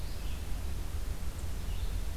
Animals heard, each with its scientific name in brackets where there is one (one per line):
Red-eyed Vireo (Vireo olivaceus)